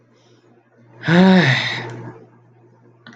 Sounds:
Sigh